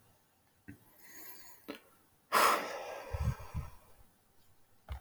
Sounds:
Sigh